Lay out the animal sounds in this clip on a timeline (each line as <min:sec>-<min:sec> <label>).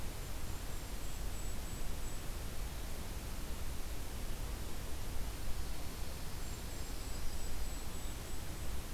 0:00.1-0:02.3 Golden-crowned Kinglet (Regulus satrapa)
0:05.4-0:06.9 Dark-eyed Junco (Junco hyemalis)
0:06.3-0:08.9 Golden-crowned Kinglet (Regulus satrapa)
0:06.5-0:07.7 Yellow-rumped Warbler (Setophaga coronata)